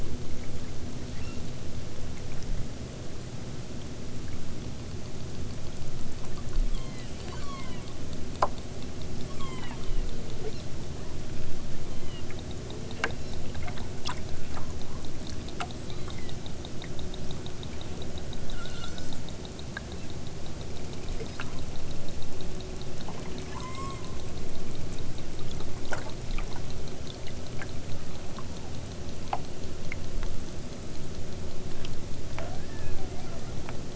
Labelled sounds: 1.1	1.5	killer whale, southern Alaska resident, 0.97 to 7.4 kHz
6.7	7.9	killer whale, southern Alaska resident, 0.55 to 7.3 kHz
9.1	10.2	killer whale, southern Alaska resident, 0.69 to 8.0 kHz
10.4	10.7	killer whale, southern Alaska resident, 2.3 to 6.0 kHz
11.8	12.3	killer whale, southern Alaska resident, 1.7 to 4.6 kHz
13.0	13.5	killer whale, southern Alaska resident, 2.7 to 7.2 kHz
15.8	16.4	killer whale, southern Alaska resident, 1.6 to 8.0 kHz
18.5	19.2	killer whale, southern Alaska resident, 1.2 to 8.0 kHz
19.9	20.1	killer whale, southern Alaska resident, 2.1 to 4.5 kHz
21.2	21.5	killer whale, southern Alaska resident, 3.3 to 5.8 kHz
23.4	24.1	killer whale, southern Alaska resident, 0.74 to 8.0 kHz

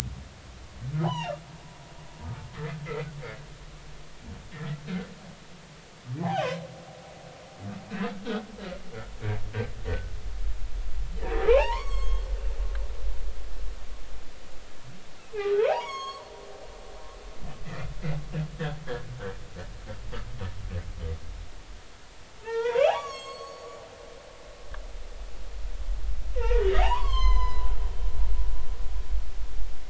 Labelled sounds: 1.0	1.4	humpback whale, 0.80 to 6.0 kHz
6.2	6.6	humpback whale, 0.80 to 3.2 kHz
11.5	12.3	humpback whale, 0.80 to 6.8 kHz
15.6	16.3	humpback whale, 0.80 to 6.7 kHz
22.4	23.8	humpback whale, 0.80 to 7.8 kHz
26.3	27.7	humpback whale, 0.80 to 6.5 kHz

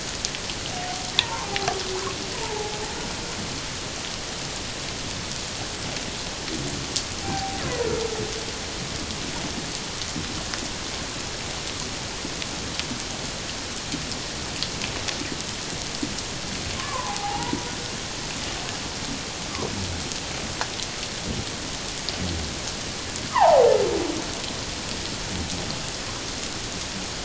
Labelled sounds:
1.2	2.8	humpback whale, 0.78 to 1.1 kHz
7.2	7.6	humpback whale, 0.78 to 0.84 kHz
16.8	17.6	humpback whale, 0.78 to 1.2 kHz
23.3	23.7	humpback whale, 0.78 to 1.3 kHz

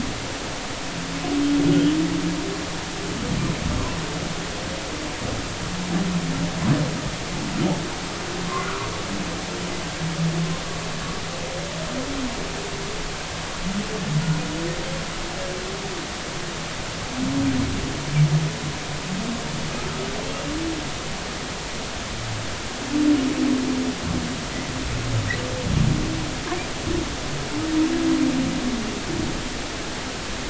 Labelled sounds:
8.6	8.9	humpback whale, 1.1 to 1.5 kHz

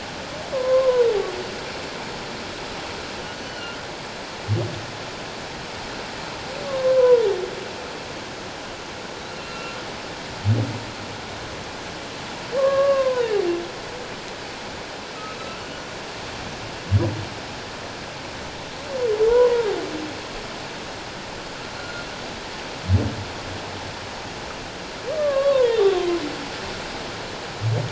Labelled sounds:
3.3	3.8	humpback whale, 2.8 to 4.5 kHz
6.7	7.3	humpback whale, 0.91 to 1.2 kHz
9.3	9.8	humpback whale, 1.3 to 2.8 kHz
12.6	13.3	humpback whale, 0.91 to 1.8 kHz
19.3	19.7	humpback whale, 0.88 to 1.1 kHz
21.8	22.0	humpback whale, 1.3 to 1.5 kHz
25.2	26.2	humpback whale, 0.88 to 3.8 kHz

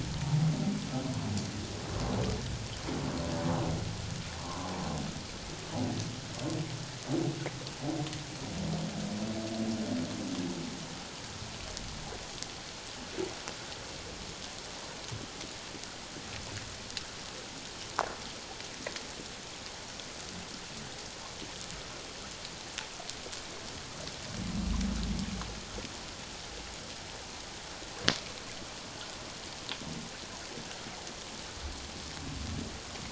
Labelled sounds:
4.4	4.7	humpback whale, 0.91 to 1.2 kHz

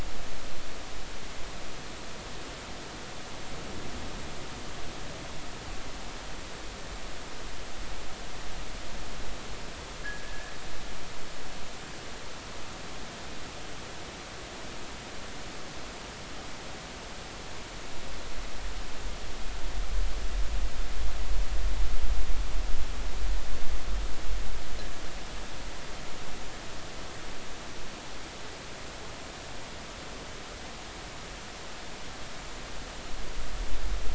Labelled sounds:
10.0	10.5	fishing gear, 1.6 to 1.8 kHz

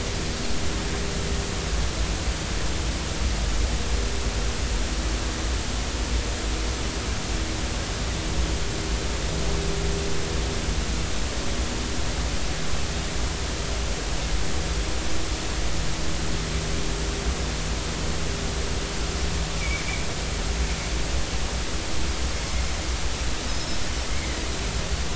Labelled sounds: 19.6	19.8	Pacific white-sided dolphin, 2.2 to 2.4 kHz
23.5	24.4	Pacific white-sided dolphin, 1.9 to 5.4 kHz

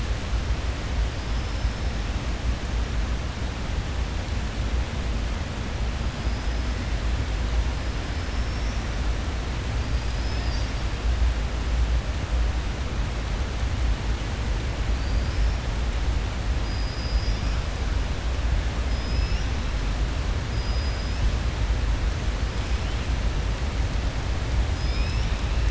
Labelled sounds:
14.9	15.5	killer whale, southern resident, 4.4 to 5.5 kHz
16.6	17.6	killer whale, southern resident, 4.9 to 5.7 kHz
18.9	19.5	killer whale, southern resident, 5.0 to 6.2 kHz
20.5	21.2	killer whale, southern resident, 4.7 to 5.4 kHz

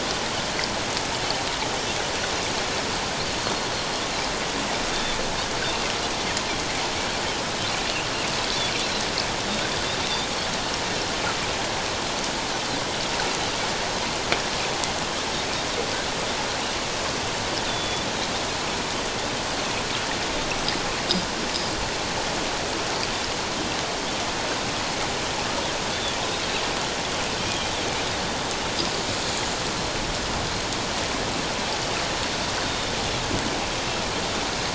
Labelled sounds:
4.9	5.2	Pacific white-sided dolphin, 3.4 to 3.7 kHz
17.7	18.1	Pacific white-sided dolphin, 3.3 to 3.6 kHz
25.9	26.2	Pacific white-sided dolphin, 3.2 to 3.6 kHz
32.6	32.9	Pacific white-sided dolphin, 3.5 to 3.7 kHz

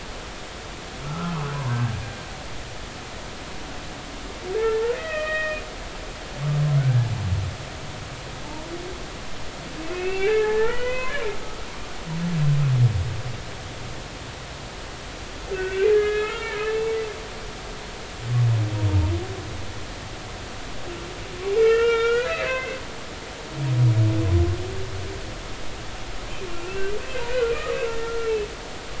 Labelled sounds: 1.0	1.8	humpback whale, 0.90 to 1.4 kHz
4.5	5.6	humpback whale, 0.83 to 2.6 kHz
6.8	7.1	humpback whale, 1.4 to 1.7 kHz
8.4	8.7	humpback whale, 0.83 to 0.99 kHz
9.9	11.7	humpback whale, 0.80 to 3.1 kHz
15.6	16.8	humpback whale, 1.2 to 3.0 kHz
21.6	22.8	humpback whale, 0.96 to 4.0 kHz
26.5	27.5	humpback whale, 1.3 to 1.6 kHz
28.0	28.3	humpback whale, 1.3 to 1.4 kHz

